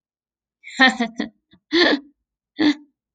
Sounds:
Laughter